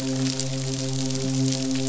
{"label": "biophony, midshipman", "recorder": "SoundTrap 500"}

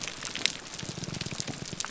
{"label": "biophony, grouper groan", "recorder": "SoundTrap 300"}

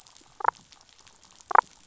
{"label": "biophony, damselfish", "recorder": "SoundTrap 500"}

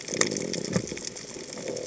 {"label": "biophony", "recorder": "HydroMoth"}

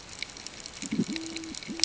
{"label": "ambient", "recorder": "HydroMoth"}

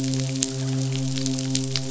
{"label": "biophony, midshipman", "recorder": "SoundTrap 500"}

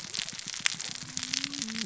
{"label": "biophony, cascading saw", "recorder": "SoundTrap 600 or HydroMoth"}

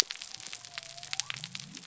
{"label": "biophony", "recorder": "SoundTrap 300"}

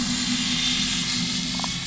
{"label": "biophony, damselfish", "recorder": "SoundTrap 500"}
{"label": "anthrophony, boat engine", "recorder": "SoundTrap 500"}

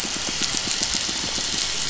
{"label": "biophony, pulse", "recorder": "SoundTrap 500"}
{"label": "anthrophony, boat engine", "recorder": "SoundTrap 500"}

